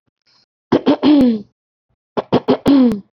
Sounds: Throat clearing